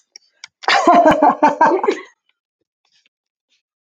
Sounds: Laughter